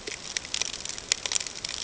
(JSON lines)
{"label": "ambient", "recorder": "HydroMoth"}